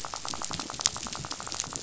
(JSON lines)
{"label": "biophony, rattle", "recorder": "SoundTrap 500"}